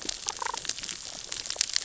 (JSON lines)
{"label": "biophony, damselfish", "recorder": "SoundTrap 600 or HydroMoth"}